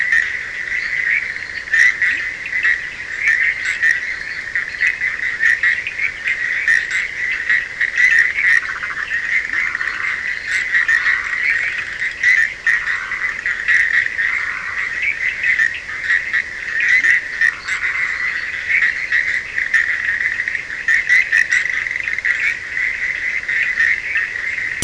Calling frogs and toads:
Boana bischoffi, Sphaenorhynchus surdus, Boana leptolineata, Leptodactylus latrans, Boana prasina
2:30am

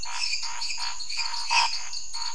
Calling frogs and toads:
Dendropsophus minutus, Dendropsophus nanus, Scinax fuscovarius
9:30pm

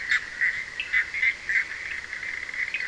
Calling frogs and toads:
Boana bischoffi, Sphaenorhynchus surdus
3:15am

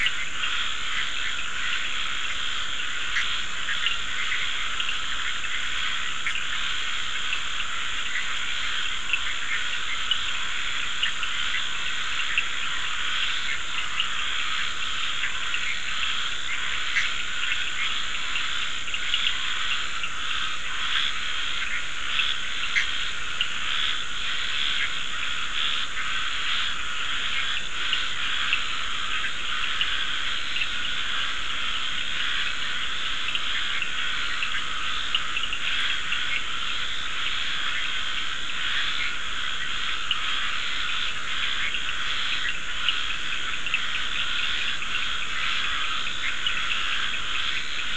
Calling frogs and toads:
Scinax perereca, Boana bischoffi, Sphaenorhynchus surdus, Dendropsophus nahdereri
5:00am

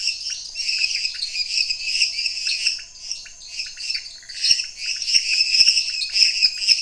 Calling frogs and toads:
Dendropsophus minutus, Dendropsophus nanus, Leptodactylus podicipinus
10:00pm

